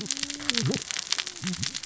{"label": "biophony, cascading saw", "recorder": "SoundTrap 600 or HydroMoth"}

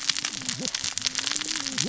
{"label": "biophony, cascading saw", "recorder": "SoundTrap 600 or HydroMoth"}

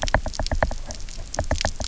{"label": "biophony, knock", "recorder": "SoundTrap 300"}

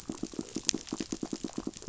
{"label": "biophony, knock", "recorder": "SoundTrap 500"}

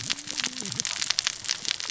{"label": "biophony, cascading saw", "recorder": "SoundTrap 600 or HydroMoth"}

